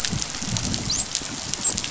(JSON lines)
{"label": "biophony, dolphin", "recorder": "SoundTrap 500"}